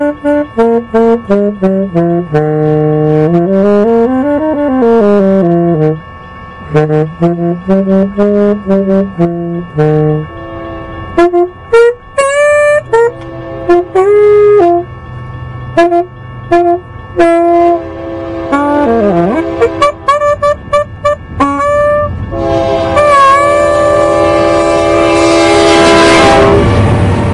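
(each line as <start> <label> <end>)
0.0 A distant train rumbles and horns sound. 22.3
0.0 A saxophone plays a smooth and melodic tune. 27.3
22.3 A very loud train whistle blows powerfully. 27.3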